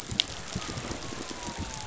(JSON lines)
{"label": "anthrophony, boat engine", "recorder": "SoundTrap 500"}
{"label": "biophony", "recorder": "SoundTrap 500"}